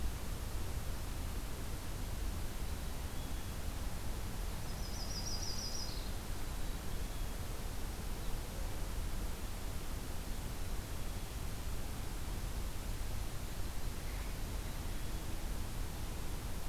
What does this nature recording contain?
Black-capped Chickadee, Yellow-rumped Warbler